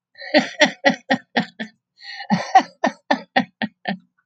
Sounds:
Laughter